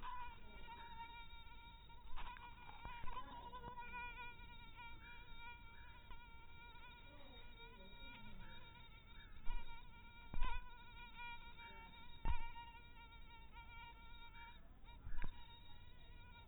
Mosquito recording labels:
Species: mosquito; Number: one; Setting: cup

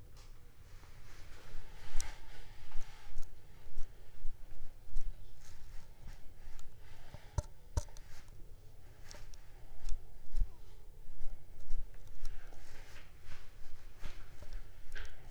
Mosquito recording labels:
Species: Anopheles arabiensis; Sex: female; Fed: unfed; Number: one; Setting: cup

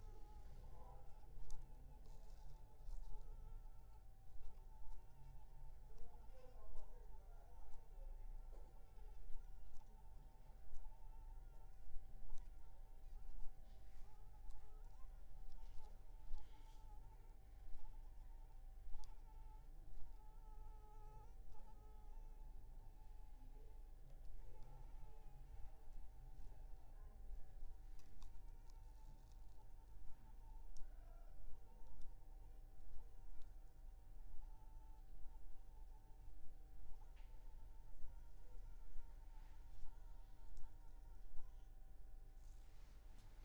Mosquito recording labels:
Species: Anopheles funestus s.s.; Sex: female; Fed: unfed; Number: one; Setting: cup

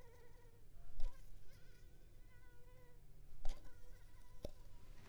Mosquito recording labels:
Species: Anopheles arabiensis; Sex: female; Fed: unfed; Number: one; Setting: cup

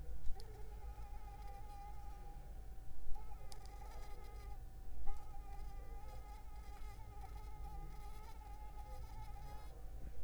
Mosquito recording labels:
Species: Anopheles arabiensis; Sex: female; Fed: unfed; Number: one; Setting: cup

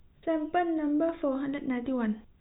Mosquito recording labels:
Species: no mosquito; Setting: cup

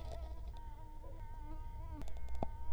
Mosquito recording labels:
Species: Culex quinquefasciatus; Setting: cup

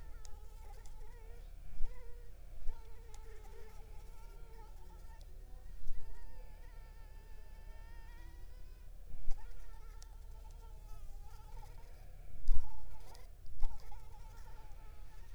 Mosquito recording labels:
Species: Anopheles arabiensis; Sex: female; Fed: unfed; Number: one; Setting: cup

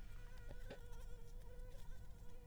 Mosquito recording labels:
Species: Anopheles arabiensis; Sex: female; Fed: unfed; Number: one; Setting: cup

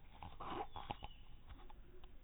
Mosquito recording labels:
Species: no mosquito; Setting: cup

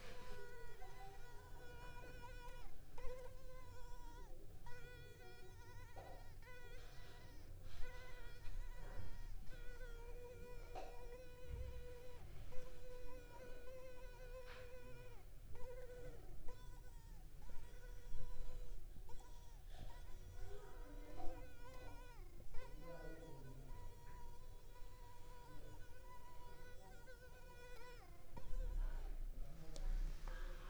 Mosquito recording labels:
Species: Culex pipiens complex; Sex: female; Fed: unfed; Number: one; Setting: cup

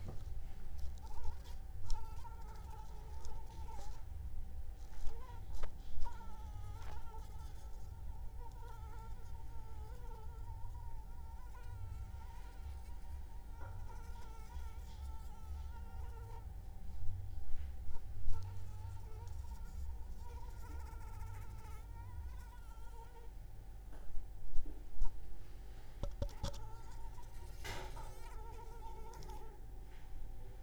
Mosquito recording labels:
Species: Anopheles arabiensis; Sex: female; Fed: unfed; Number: one; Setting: cup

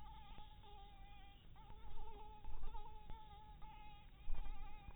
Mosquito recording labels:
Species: Anopheles dirus; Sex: female; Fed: blood-fed; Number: one; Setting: cup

